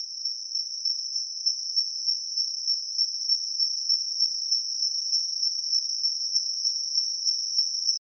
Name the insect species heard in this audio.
Cyrtoxipha columbiana